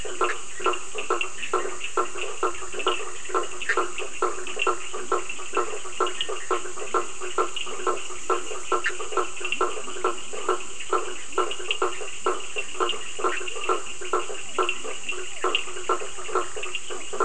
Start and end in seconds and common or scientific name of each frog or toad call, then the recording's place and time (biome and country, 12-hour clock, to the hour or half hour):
0.0	0.6	Bischoff's tree frog
0.0	17.2	blacksmith tree frog
0.0	17.2	Leptodactylus latrans
0.0	17.2	Cochran's lime tree frog
3.6	4.0	Bischoff's tree frog
8.7	9.2	Bischoff's tree frog
Atlantic Forest, Brazil, 10pm